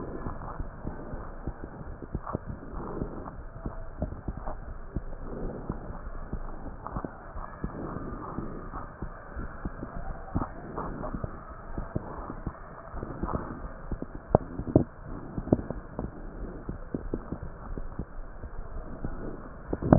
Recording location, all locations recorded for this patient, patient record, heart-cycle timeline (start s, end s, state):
aortic valve (AV)
aortic valve (AV)+pulmonary valve (PV)+tricuspid valve (TV)
#Age: Child
#Sex: Male
#Height: 138.0 cm
#Weight: 44.8 kg
#Pregnancy status: False
#Murmur: Absent
#Murmur locations: nan
#Most audible location: nan
#Systolic murmur timing: nan
#Systolic murmur shape: nan
#Systolic murmur grading: nan
#Systolic murmur pitch: nan
#Systolic murmur quality: nan
#Diastolic murmur timing: nan
#Diastolic murmur shape: nan
#Diastolic murmur grading: nan
#Diastolic murmur pitch: nan
#Diastolic murmur quality: nan
#Outcome: Normal
#Campaign: 2015 screening campaign
0.00	8.48	unannotated
8.48	8.72	diastole
8.72	8.89	S1
8.89	8.99	systole
8.99	9.11	S2
9.11	9.36	diastole
9.36	9.50	S1
9.50	9.64	systole
9.64	9.76	S2
9.76	10.06	diastole
10.06	10.18	S1
10.18	10.34	systole
10.34	10.48	S2
10.48	10.78	diastole
10.78	10.96	S1
10.96	11.12	systole
11.12	11.24	S2
11.24	11.52	diastole
11.52	11.60	S1
11.60	11.76	systole
11.76	11.86	S2
11.86	12.18	diastole
12.18	12.28	S1
12.28	12.44	systole
12.44	12.60	S2
12.60	12.94	diastole
12.94	13.06	S1
13.06	13.18	systole
13.18	13.30	S2
13.30	13.62	diastole
13.62	13.74	S1
13.74	13.84	systole
13.84	14.00	S2
14.00	14.30	diastole
14.30	14.46	S1
14.46	14.56	systole
14.56	14.88	S2
14.88	15.08	diastole
15.08	15.22	S1
15.22	15.35	systole
15.35	15.49	S2
15.49	15.98	diastole
15.98	16.12	S1
16.12	16.24	systole
16.24	16.34	S2
16.34	16.68	diastole
16.68	16.84	S1
16.84	16.95	systole
16.95	17.24	S2
17.24	17.66	diastole
17.66	17.82	S1
17.82	17.98	systole
17.98	18.08	S2
18.08	18.44	diastole
18.44	19.98	unannotated